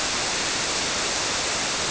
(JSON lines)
{"label": "biophony", "recorder": "SoundTrap 300"}